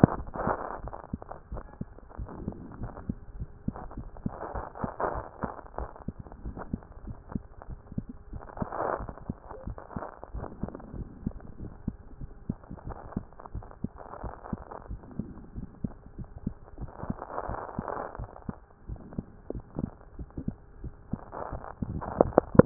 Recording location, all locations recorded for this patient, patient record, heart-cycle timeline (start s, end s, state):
mitral valve (MV)
pulmonary valve (PV)+tricuspid valve (TV)+mitral valve (MV)
#Age: Child
#Sex: Female
#Height: 120.0 cm
#Weight: 24.4 kg
#Pregnancy status: False
#Murmur: Absent
#Murmur locations: nan
#Most audible location: nan
#Systolic murmur timing: nan
#Systolic murmur shape: nan
#Systolic murmur grading: nan
#Systolic murmur pitch: nan
#Systolic murmur quality: nan
#Diastolic murmur timing: nan
#Diastolic murmur shape: nan
#Diastolic murmur grading: nan
#Diastolic murmur pitch: nan
#Diastolic murmur quality: nan
#Outcome: Normal
#Campaign: 2014 screening campaign
0.00	1.45	unannotated
1.45	1.52	diastole
1.52	1.64	S1
1.64	1.80	systole
1.80	1.88	S2
1.88	2.18	diastole
2.18	2.30	S1
2.30	2.44	systole
2.44	2.54	S2
2.54	2.80	diastole
2.80	2.92	S1
2.92	3.08	systole
3.08	3.16	S2
3.16	3.36	diastole
3.36	3.48	S1
3.48	3.66	systole
3.66	3.76	S2
3.76	3.96	diastole
3.96	4.08	S1
4.08	4.24	systole
4.24	4.34	S2
4.34	4.54	diastole
4.54	4.66	S1
4.66	4.82	systole
4.82	4.90	S2
4.90	5.12	diastole
5.12	5.24	S1
5.24	5.42	systole
5.42	5.52	S2
5.52	5.78	diastole
5.78	5.88	S1
5.88	6.06	systole
6.06	6.16	S2
6.16	6.44	diastole
6.44	6.56	S1
6.56	6.72	systole
6.72	6.80	S2
6.80	7.06	diastole
7.06	7.16	S1
7.16	7.34	systole
7.34	7.44	S2
7.44	7.68	diastole
7.68	7.80	S1
7.80	7.96	systole
7.96	8.06	S2
8.06	8.32	diastole
8.32	22.66	unannotated